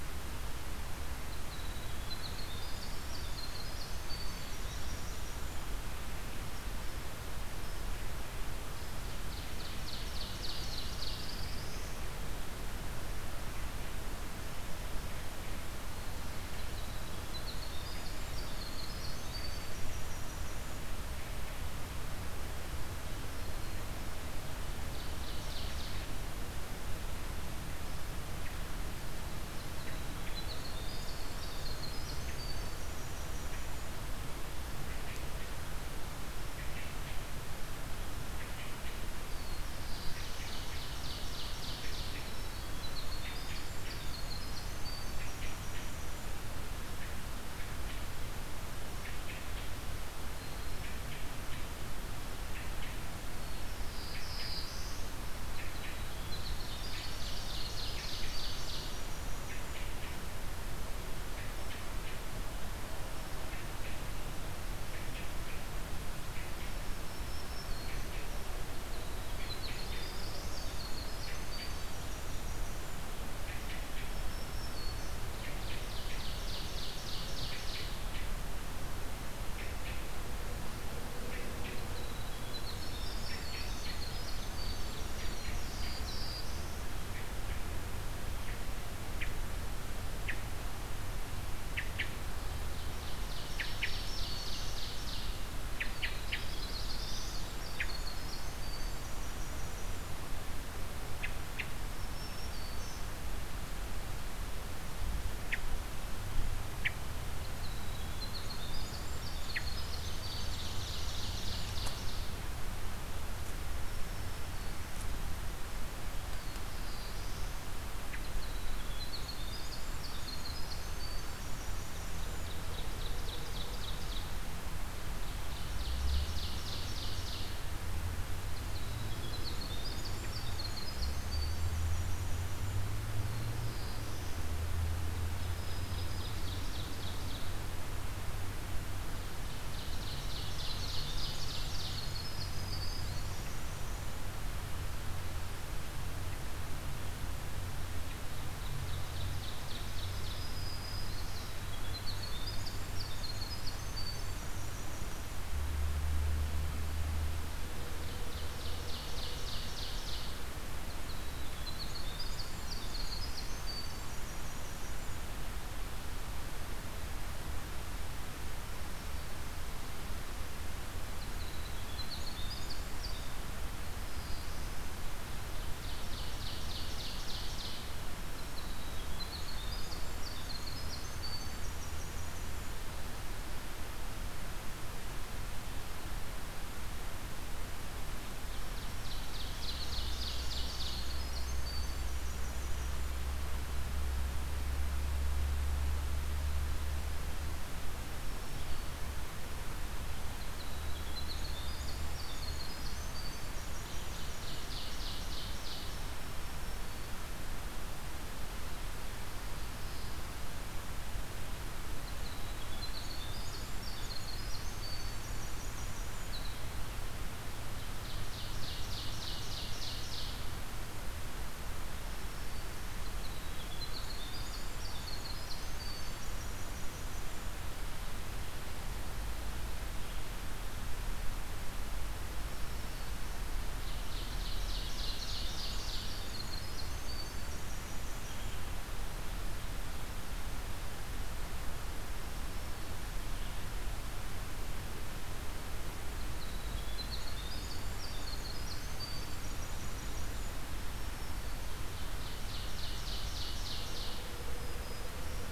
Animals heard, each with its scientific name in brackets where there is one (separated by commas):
Ovenbird (Seiurus aurocapilla), Hermit Thrush (Catharus guttatus), Black-throated Green Warbler (Setophaga virens), Winter Wren (Troglodytes hiemalis), Black-throated Blue Warbler (Setophaga caerulescens)